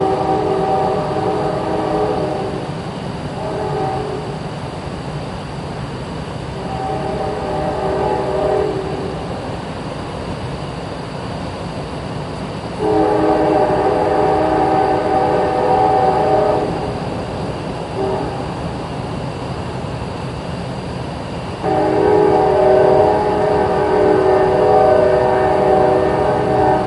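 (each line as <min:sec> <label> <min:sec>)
0:00.0 Ambient nature sounds with bugs. 0:26.9
0:00.0 A train horn sounds in the distance. 0:04.5
0:06.6 A train horn sounds in the distance. 0:09.0
0:12.8 A train horn sounds in the distance. 0:17.0
0:17.8 A train horn sounds in the distance. 0:18.5
0:21.6 A train horn sounds in the distance. 0:26.9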